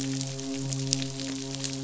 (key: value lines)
label: biophony, midshipman
recorder: SoundTrap 500